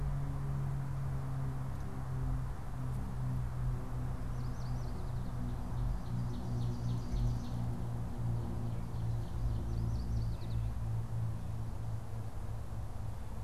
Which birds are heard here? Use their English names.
Yellow Warbler, Ovenbird